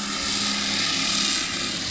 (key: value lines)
label: anthrophony, boat engine
recorder: SoundTrap 500